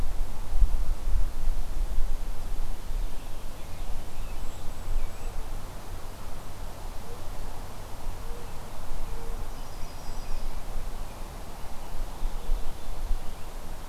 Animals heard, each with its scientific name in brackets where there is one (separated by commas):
Yellow-rumped Warbler (Setophaga coronata), American Robin (Turdus migratorius), Golden-crowned Kinglet (Regulus satrapa), Mourning Dove (Zenaida macroura)